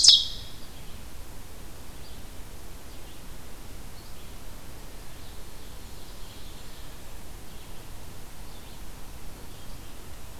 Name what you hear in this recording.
Ovenbird, Red-eyed Vireo